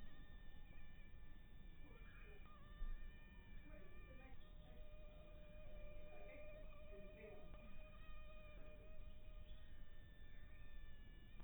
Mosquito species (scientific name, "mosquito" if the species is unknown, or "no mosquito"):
mosquito